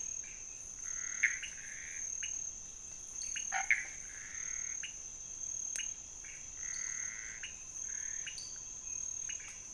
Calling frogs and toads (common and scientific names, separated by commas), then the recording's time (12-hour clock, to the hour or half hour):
Pithecopus azureus, pointedbelly frog (Leptodactylus podicipinus), Chaco tree frog (Boana raniceps)
~3am